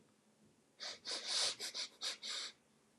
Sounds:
Sniff